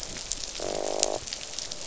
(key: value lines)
label: biophony, croak
recorder: SoundTrap 500